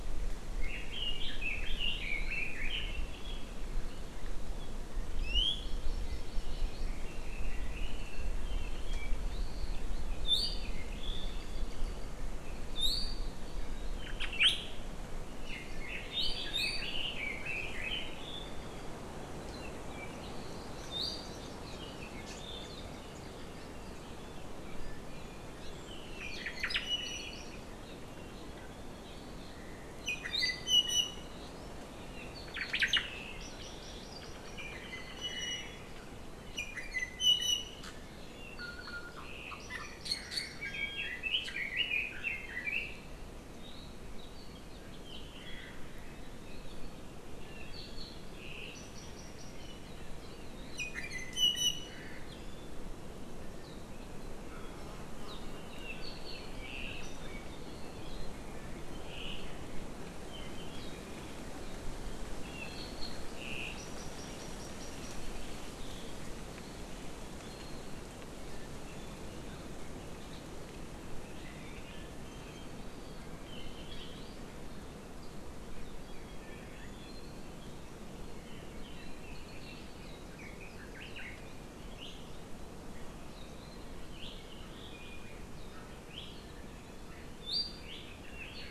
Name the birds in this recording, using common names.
Red-billed Leiothrix, Hawaii Amakihi, Apapane, Omao, Iiwi